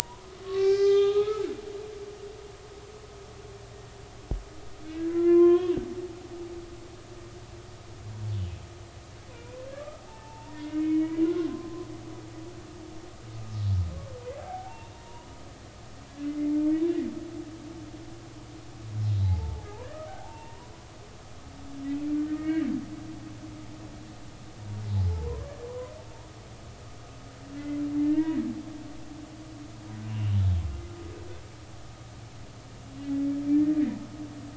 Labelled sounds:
0.4	1.5	humpback whale, 0.80 to 5.2 kHz
4.8	5.7	humpback whale, 0.99 to 3.4 kHz
9.3	10.0	humpback whale, 1.1 to 2.6 kHz
10.6	11.9	humpback whale, 0.80 to 2.4 kHz
14.4	15.3	humpback whale, 0.80 to 2.8 kHz
16.2	16.9	humpback whale, 2.0 to 2.4 kHz
19.2	19.7	humpback whale, 0.80 to 0.93 kHz
20.1	20.7	humpback whale, 0.80 to 2.8 kHz
22.2	22.7	humpback whale, 1.8 to 2.3 kHz
25.0	25.5	humpback whale, 0.83 to 1.2 kHz
27.6	28.4	humpback whale, 0.90 to 2.9 kHz
30.1	30.3	humpback whale, 2.7 to 3.0 kHz
33.5	33.8	humpback whale, 1.7 to 1.9 kHz

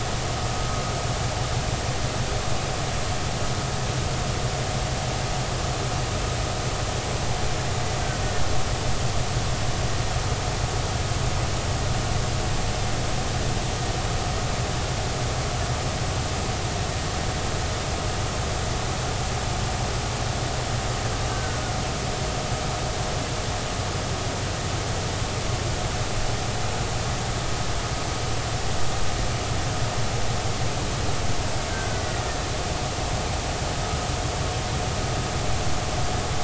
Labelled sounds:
21.3	21.6	killer whale, Bigg's (transient), 1.3 to 1.6 kHz
31.7	32.0	killer whale, Bigg's (transient), 1.4 to 1.7 kHz

